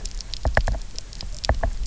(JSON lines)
{"label": "biophony, knock", "recorder": "SoundTrap 300"}